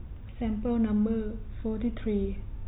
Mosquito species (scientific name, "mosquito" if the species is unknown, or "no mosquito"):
no mosquito